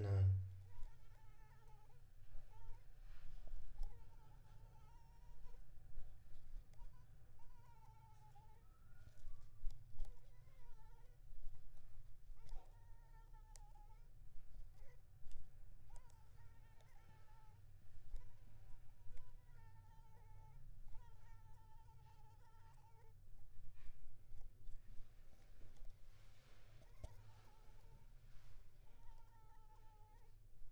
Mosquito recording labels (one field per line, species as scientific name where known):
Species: Anopheles arabiensis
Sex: female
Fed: unfed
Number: one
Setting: cup